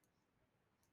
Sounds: Sigh